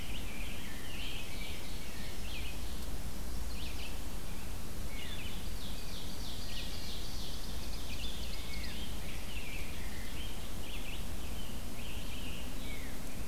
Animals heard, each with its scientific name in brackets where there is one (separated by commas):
Scarlet Tanager (Piranga olivacea), Wood Thrush (Hylocichla mustelina), Rose-breasted Grosbeak (Pheucticus ludovicianus), Red-eyed Vireo (Vireo olivaceus), Chestnut-sided Warbler (Setophaga pensylvanica), Ovenbird (Seiurus aurocapilla)